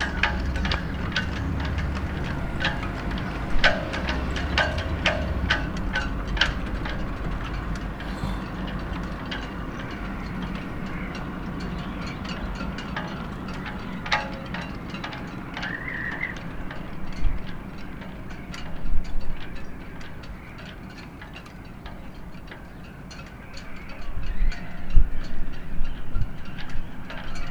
What is moving the objects?
wind